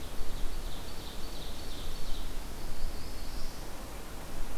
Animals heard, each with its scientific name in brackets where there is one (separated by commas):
Ovenbird (Seiurus aurocapilla), Black-throated Blue Warbler (Setophaga caerulescens)